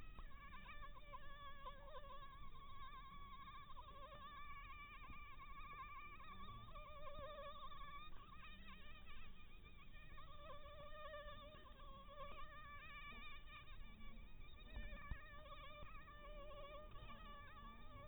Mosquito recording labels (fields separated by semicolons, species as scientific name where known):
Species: Anopheles maculatus; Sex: female; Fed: blood-fed; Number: one; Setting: cup